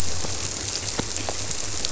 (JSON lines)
{"label": "biophony", "recorder": "SoundTrap 300"}